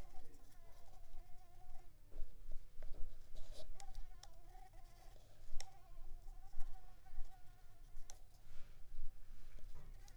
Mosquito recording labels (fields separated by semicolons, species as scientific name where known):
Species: Mansonia uniformis; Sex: female; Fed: unfed; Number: one; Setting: cup